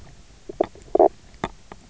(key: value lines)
label: biophony, knock croak
recorder: SoundTrap 300